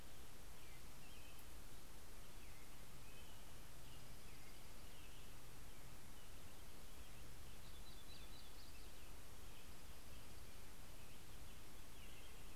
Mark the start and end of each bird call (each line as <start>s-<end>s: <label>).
0.0s-12.6s: American Robin (Turdus migratorius)
3.4s-5.4s: Dark-eyed Junco (Junco hyemalis)
7.3s-9.2s: Yellow-rumped Warbler (Setophaga coronata)
9.4s-10.9s: Dark-eyed Junco (Junco hyemalis)